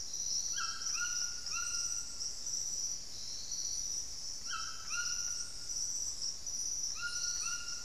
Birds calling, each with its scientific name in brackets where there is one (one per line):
White-throated Toucan (Ramphastos tucanus)